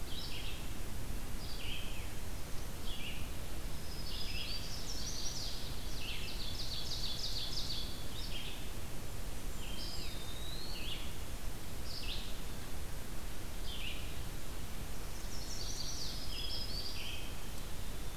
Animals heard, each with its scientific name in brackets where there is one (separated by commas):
Red-eyed Vireo (Vireo olivaceus), Ovenbird (Seiurus aurocapilla), Blackburnian Warbler (Setophaga fusca), Chestnut-sided Warbler (Setophaga pensylvanica), Eastern Wood-Pewee (Contopus virens), Black-throated Green Warbler (Setophaga virens)